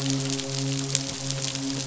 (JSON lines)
{"label": "biophony, midshipman", "recorder": "SoundTrap 500"}